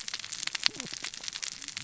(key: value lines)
label: biophony, cascading saw
recorder: SoundTrap 600 or HydroMoth